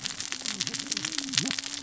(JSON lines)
{"label": "biophony, cascading saw", "recorder": "SoundTrap 600 or HydroMoth"}